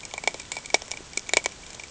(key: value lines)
label: ambient
recorder: HydroMoth